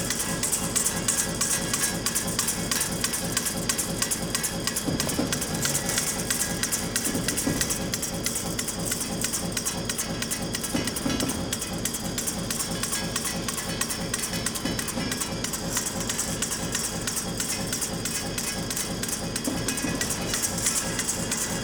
Is this a bell on a bike?
no